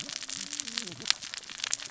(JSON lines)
{"label": "biophony, cascading saw", "recorder": "SoundTrap 600 or HydroMoth"}